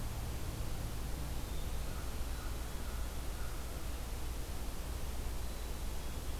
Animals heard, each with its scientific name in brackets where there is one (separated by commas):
American Crow (Corvus brachyrhynchos), Eastern Wood-Pewee (Contopus virens), Black-capped Chickadee (Poecile atricapillus)